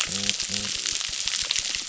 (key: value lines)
label: biophony
recorder: SoundTrap 600